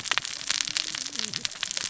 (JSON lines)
{"label": "biophony, cascading saw", "recorder": "SoundTrap 600 or HydroMoth"}